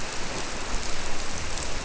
{"label": "biophony", "recorder": "SoundTrap 300"}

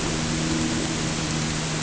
{"label": "anthrophony, boat engine", "recorder": "HydroMoth"}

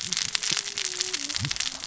{"label": "biophony, cascading saw", "recorder": "SoundTrap 600 or HydroMoth"}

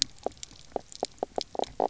{"label": "biophony, knock croak", "recorder": "SoundTrap 300"}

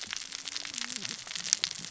{"label": "biophony, cascading saw", "recorder": "SoundTrap 600 or HydroMoth"}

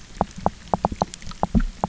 {"label": "biophony", "recorder": "SoundTrap 300"}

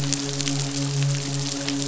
{"label": "biophony, midshipman", "recorder": "SoundTrap 500"}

